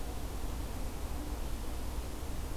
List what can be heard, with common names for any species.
forest ambience